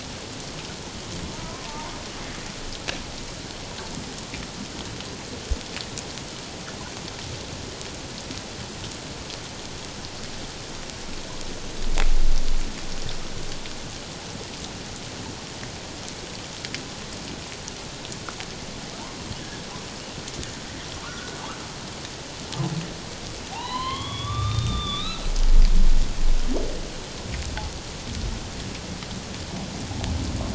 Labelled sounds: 1.3	1.9	humpback whale, 0.84 to 1.3 kHz
19.4	19.7	humpback whale, 1.6 to 1.8 kHz
21.0	21.4	humpback whale, 1.0 to 1.5 kHz
23.5	25.3	humpback whale, 0.78 to 4.3 kHz

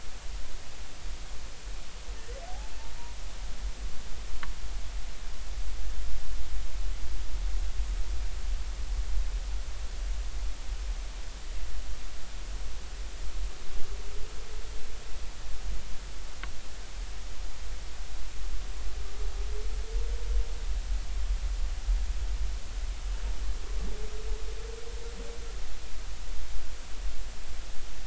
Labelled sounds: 2.5	2.7	humpback whale, 0.80 to 0.90 kHz

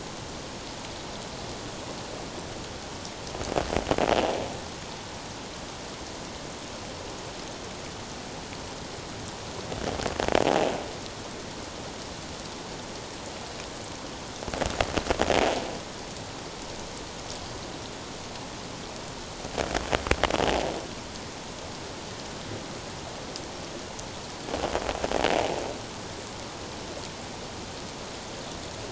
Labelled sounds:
20.5	20.7	invertebrate grinding on or near the hydrophone, 0.78 to 0.97 kHz

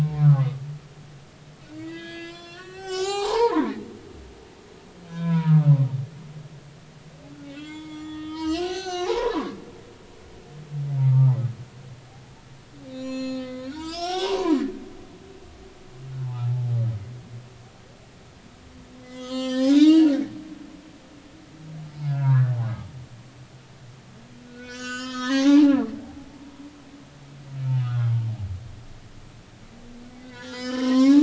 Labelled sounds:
0.2	0.6	humpback whale, 0.99 to 1.5 kHz
1.8	3.8	humpback whale, 0.80 to 7.7 kHz
5.1	5.7	humpback whale, 0.90 to 3.6 kHz
7.5	9.6	humpback whale, 0.80 to 6.4 kHz
11.0	11.3	humpback whale, 0.86 to 1.3 kHz
12.9	14.6	humpback whale, 0.86 to 8.0 kHz
16.2	16.7	humpback whale, 0.80 to 1.1 kHz
19.0	20.1	humpback whale, 0.80 to 7.3 kHz
22.0	22.6	humpback whale, 0.90 to 1.9 kHz
24.4	26.6	humpback whale, 0.80 to 7.7 kHz
27.8	28.1	humpback whale, 1.0 to 1.5 kHz
30.1	31.2	humpback whale, 0.80 to 7.1 kHz

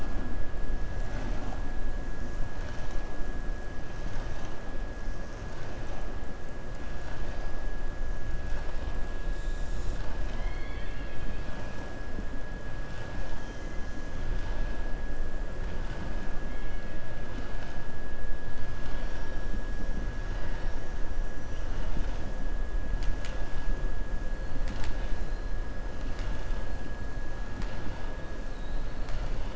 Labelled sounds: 9.9	11.7	killer whale, southern resident, 0.92 to 4.6 kHz

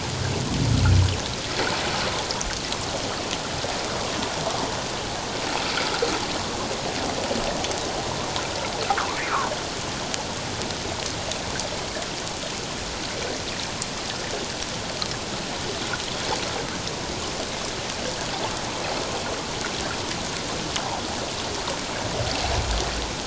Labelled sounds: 5.8	6.0	water noise, 1.3 to 1.5 kHz

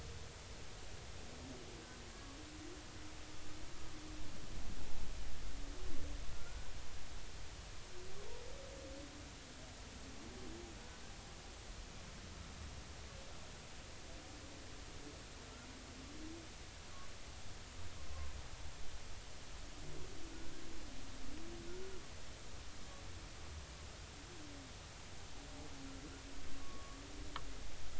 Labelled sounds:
2.1	2.4	humpback whale, 1.1 to 1.2 kHz
6.3	6.7	humpback whale, 1.3 to 1.6 kHz
26.6	27.0	humpback whale, 1.1 to 1.2 kHz

